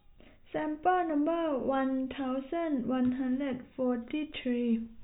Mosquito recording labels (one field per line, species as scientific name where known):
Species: no mosquito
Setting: cup